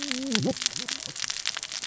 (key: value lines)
label: biophony, cascading saw
recorder: SoundTrap 600 or HydroMoth